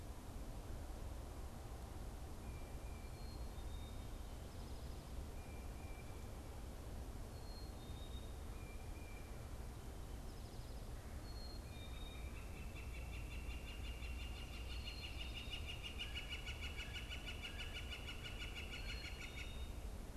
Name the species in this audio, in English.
Tufted Titmouse, Black-capped Chickadee